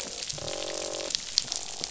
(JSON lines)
{"label": "biophony, croak", "recorder": "SoundTrap 500"}